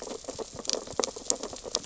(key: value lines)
label: biophony, sea urchins (Echinidae)
recorder: SoundTrap 600 or HydroMoth